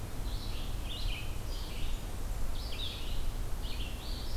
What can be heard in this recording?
Red-eyed Vireo, Blackburnian Warbler